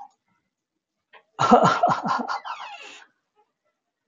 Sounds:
Laughter